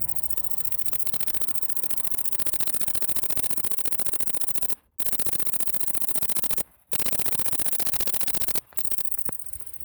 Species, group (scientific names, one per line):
Tettigonia viridissima
Orthoptera